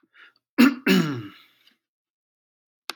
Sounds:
Throat clearing